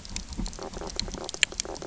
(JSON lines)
{"label": "biophony, knock croak", "recorder": "SoundTrap 300"}